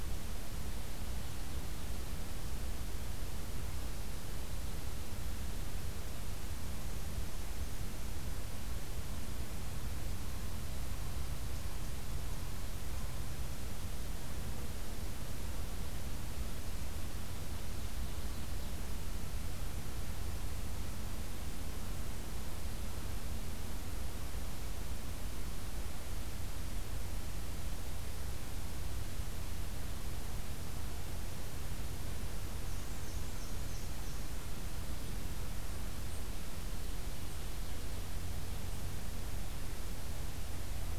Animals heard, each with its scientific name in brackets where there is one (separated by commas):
Black-and-white Warbler (Mniotilta varia)